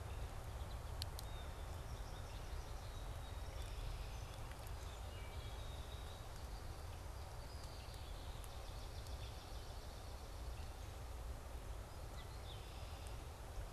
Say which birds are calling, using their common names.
Blue Jay, American Goldfinch, Song Sparrow, Wood Thrush, Red-winged Blackbird, Swamp Sparrow, Yellow-bellied Sapsucker, Gray Catbird